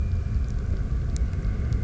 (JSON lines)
{"label": "anthrophony, boat engine", "recorder": "SoundTrap 300"}